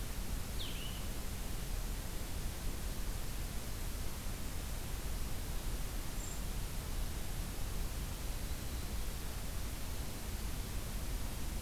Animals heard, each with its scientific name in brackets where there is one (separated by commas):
Brown Creeper (Certhia americana), Blue-headed Vireo (Vireo solitarius)